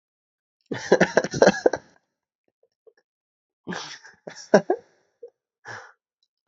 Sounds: Laughter